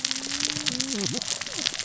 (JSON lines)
{"label": "biophony, cascading saw", "recorder": "SoundTrap 600 or HydroMoth"}